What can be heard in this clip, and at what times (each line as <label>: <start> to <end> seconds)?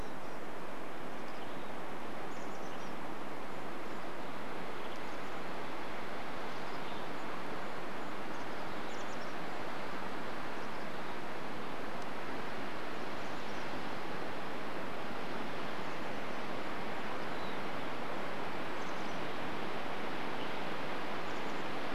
Mountain Chickadee call: 0 to 2 seconds
Chestnut-backed Chickadee call: 0 to 6 seconds
Golden-crowned Kinglet call: 2 to 4 seconds
Golden-crowned Kinglet song: 4 to 6 seconds
Mountain Chickadee call: 6 to 8 seconds
Golden-crowned Kinglet call: 6 to 10 seconds
Mountain Chickadee call: 10 to 12 seconds
Chestnut-backed Chickadee call: 12 to 14 seconds
Mountain Chickadee call: 16 to 18 seconds
Golden-crowned Kinglet song: 16 to 20 seconds
Chestnut-backed Chickadee call: 18 to 22 seconds